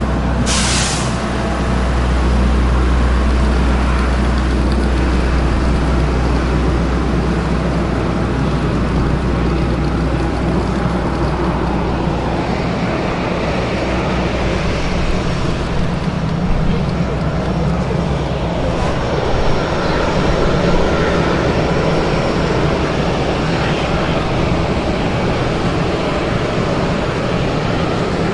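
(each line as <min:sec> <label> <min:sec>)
0:00.0 Jet engines humming loudly. 0:28.3
0:03.3 Suitcase wheels rolling repeatedly. 0:26.8
0:16.4 People are having a muffled conversation in the background. 0:23.1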